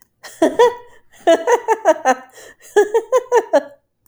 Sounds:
Laughter